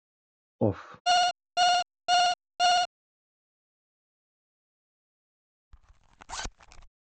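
First someone says "off." Then an alarm is heard. Finally, you can hear a zipper.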